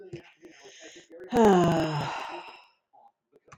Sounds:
Sigh